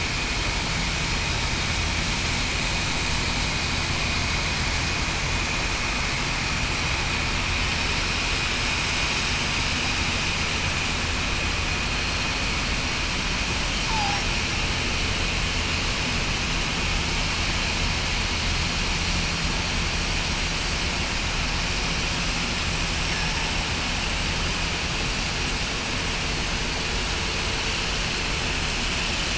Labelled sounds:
13.9	14.2	killer whale, southern resident, 0.77 to 0.94 kHz

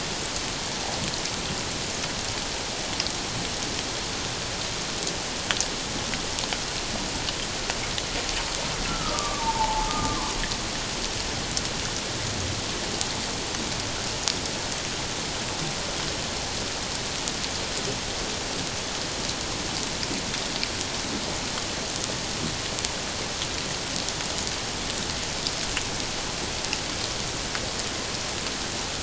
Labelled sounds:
8.9	10.3	humpback whale, 0.81 to 1.4 kHz

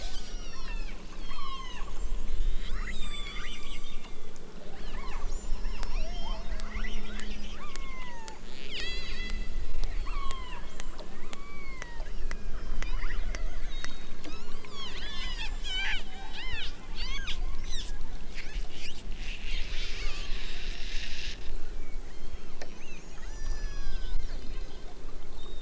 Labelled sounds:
0.3	4.3	killer whale, southern Alaska resident, 0.46 to 8.0 kHz
4.6	5.3	killer whale, southern Alaska resident, 0.64 to 4.9 kHz
5.7	6.5	killer whale, southern Alaska resident, 0.69 to 6.2 kHz
7.5	13.1	killer whale, southern Alaska resident, 0.60 to 8.0 kHz
13.7	18.0	killer whale, southern Alaska resident, 0.55 to 8.0 kHz
20.0	20.7	killer whale, southern Alaska resident, 0.69 to 1.4 kHz
22.0	24.2	killer whale, southern Alaska resident, 0.55 to 7.4 kHz

